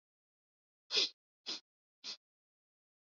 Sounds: Sniff